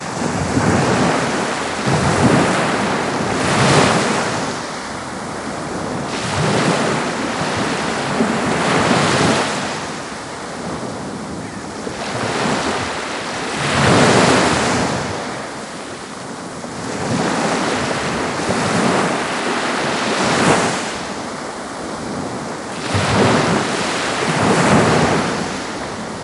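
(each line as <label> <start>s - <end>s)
Ocean waves crashing continuously nearby. 0.0s - 26.2s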